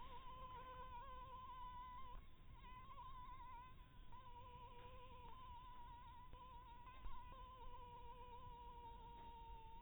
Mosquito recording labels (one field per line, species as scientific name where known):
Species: Anopheles harrisoni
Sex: female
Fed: blood-fed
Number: one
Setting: cup